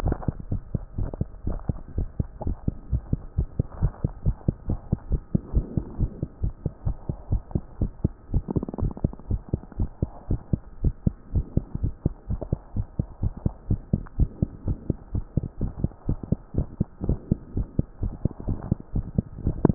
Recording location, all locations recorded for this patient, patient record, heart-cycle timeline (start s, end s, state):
tricuspid valve (TV)
aortic valve (AV)+pulmonary valve (PV)+tricuspid valve (TV)+mitral valve (MV)
#Age: Child
#Sex: Male
#Height: 129.0 cm
#Weight: 26.8 kg
#Pregnancy status: False
#Murmur: Absent
#Murmur locations: nan
#Most audible location: nan
#Systolic murmur timing: nan
#Systolic murmur shape: nan
#Systolic murmur grading: nan
#Systolic murmur pitch: nan
#Systolic murmur quality: nan
#Diastolic murmur timing: nan
#Diastolic murmur shape: nan
#Diastolic murmur grading: nan
#Diastolic murmur pitch: nan
#Diastolic murmur quality: nan
#Outcome: Normal
#Campaign: 2014 screening campaign
0.00	0.43	unannotated
0.43	0.50	diastole
0.50	0.62	S1
0.62	0.72	systole
0.72	0.82	S2
0.82	0.98	diastole
0.98	1.10	S1
1.10	1.20	systole
1.20	1.28	S2
1.28	1.46	diastole
1.46	1.58	S1
1.58	1.68	systole
1.68	1.78	S2
1.78	1.96	diastole
1.96	2.08	S1
2.08	2.18	systole
2.18	2.28	S2
2.28	2.46	diastole
2.46	2.56	S1
2.56	2.66	systole
2.66	2.74	S2
2.74	2.92	diastole
2.92	3.02	S1
3.02	3.12	systole
3.12	3.20	S2
3.20	3.36	diastole
3.36	3.48	S1
3.48	3.58	systole
3.58	3.66	S2
3.66	3.80	diastole
3.80	3.92	S1
3.92	4.02	systole
4.02	4.12	S2
4.12	4.26	diastole
4.26	4.36	S1
4.36	4.46	systole
4.46	4.56	S2
4.56	4.68	diastole
4.68	4.80	S1
4.80	4.90	systole
4.90	4.98	S2
4.98	5.10	diastole
5.10	5.20	S1
5.20	5.32	systole
5.32	5.42	S2
5.42	5.54	diastole
5.54	5.66	S1
5.66	5.76	systole
5.76	5.84	S2
5.84	5.98	diastole
5.98	6.10	S1
6.10	6.20	systole
6.20	6.28	S2
6.28	6.42	diastole
6.42	6.54	S1
6.54	6.64	systole
6.64	6.72	S2
6.72	6.86	diastole
6.86	6.96	S1
6.96	7.08	systole
7.08	7.16	S2
7.16	7.30	diastole
7.30	7.42	S1
7.42	7.54	systole
7.54	7.62	S2
7.62	7.80	diastole
7.80	7.92	S1
7.92	8.02	systole
8.02	8.12	S2
8.12	8.32	diastole
8.32	8.44	S1
8.44	8.54	systole
8.54	8.64	S2
8.64	8.80	diastole
8.80	8.92	S1
8.92	9.02	systole
9.02	9.12	S2
9.12	9.30	diastole
9.30	9.40	S1
9.40	9.52	systole
9.52	9.60	S2
9.60	9.78	diastole
9.78	9.90	S1
9.90	10.00	systole
10.00	10.10	S2
10.10	10.30	diastole
10.30	10.40	S1
10.40	10.52	systole
10.52	10.60	S2
10.60	10.82	diastole
10.82	10.94	S1
10.94	11.04	systole
11.04	11.14	S2
11.14	11.34	diastole
11.34	11.46	S1
11.46	11.56	systole
11.56	11.64	S2
11.64	11.82	diastole
11.82	11.94	S1
11.94	12.04	systole
12.04	12.14	S2
12.14	12.30	diastole
12.30	12.40	S1
12.40	12.50	systole
12.50	12.60	S2
12.60	12.76	diastole
12.76	12.86	S1
12.86	12.98	systole
12.98	13.06	S2
13.06	13.22	diastole
13.22	13.32	S1
13.32	13.44	systole
13.44	13.54	S2
13.54	13.68	diastole
13.68	13.80	S1
13.80	13.92	systole
13.92	14.02	S2
14.02	14.18	diastole
14.18	14.30	S1
14.30	14.40	systole
14.40	14.50	S2
14.50	14.66	diastole
14.66	14.78	S1
14.78	14.88	systole
14.88	14.96	S2
14.96	15.14	diastole
15.14	15.24	S1
15.24	15.36	systole
15.36	15.46	S2
15.46	15.60	diastole
15.60	15.72	S1
15.72	15.82	systole
15.82	15.90	S2
15.90	16.08	diastole
16.08	16.18	S1
16.18	16.30	systole
16.30	16.38	S2
16.38	16.56	diastole
16.56	16.68	S1
16.68	16.78	systole
16.78	16.86	S2
16.86	17.06	diastole
17.06	17.18	S1
17.18	17.30	systole
17.30	17.38	S2
17.38	17.56	diastole
17.56	17.68	S1
17.68	17.78	systole
17.78	17.86	S2
17.86	18.02	diastole
18.02	18.14	S1
18.14	18.24	systole
18.24	18.30	S2
18.30	18.46	diastole
18.46	18.58	S1
18.58	18.68	systole
18.68	18.78	S2
18.78	18.94	diastole
18.94	19.06	S1
19.06	19.16	systole
19.16	19.24	S2
19.24	19.44	diastole
19.44	19.74	unannotated